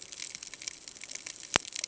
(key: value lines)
label: ambient
recorder: HydroMoth